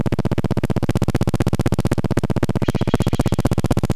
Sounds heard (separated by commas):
recorder noise, Steller's Jay call